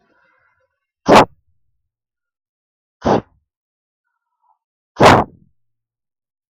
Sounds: Sneeze